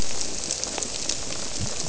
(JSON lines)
{"label": "biophony", "recorder": "SoundTrap 300"}